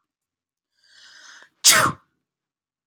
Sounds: Sneeze